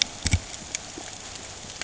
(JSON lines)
{"label": "ambient", "recorder": "HydroMoth"}